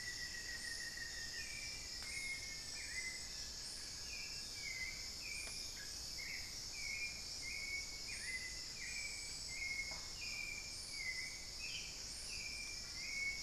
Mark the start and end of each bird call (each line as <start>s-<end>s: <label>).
0.0s-5.2s: Black-faced Antthrush (Formicarius analis)
0.0s-6.2s: Long-winged Antwren (Myrmotherula longipennis)
0.0s-13.4s: Hauxwell's Thrush (Turdus hauxwelli)
0.0s-13.4s: unidentified bird